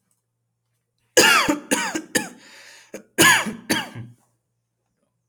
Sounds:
Cough